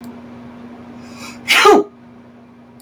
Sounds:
Sneeze